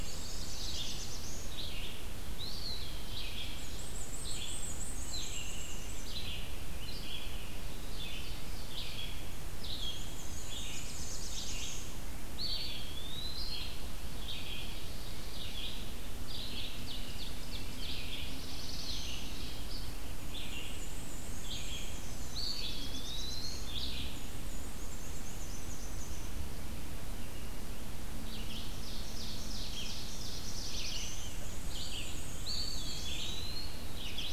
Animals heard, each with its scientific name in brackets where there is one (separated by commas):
Black-throated Blue Warbler (Setophaga caerulescens), Eastern Wood-Pewee (Contopus virens), Black-and-white Warbler (Mniotilta varia), Ovenbird (Seiurus aurocapilla), Red-eyed Vireo (Vireo olivaceus)